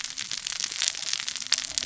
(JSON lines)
{"label": "biophony, cascading saw", "recorder": "SoundTrap 600 or HydroMoth"}